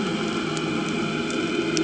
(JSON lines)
{"label": "anthrophony, boat engine", "recorder": "HydroMoth"}